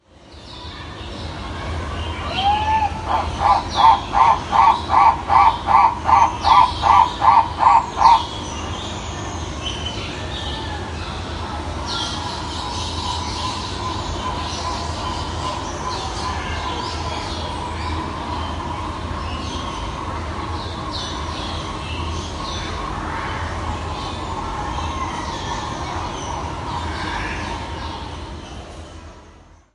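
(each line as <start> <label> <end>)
0.0 Birds are singing repeatedly and lively in the background. 29.7
2.1 A bird screams loudly once. 3.1
3.0 A bird sings loudly and repeatedly. 8.4
11.4 A bird sings loudly and repeatedly in the distant background. 18.7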